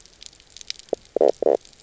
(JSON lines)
{"label": "biophony, knock croak", "recorder": "SoundTrap 300"}